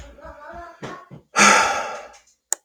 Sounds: Sigh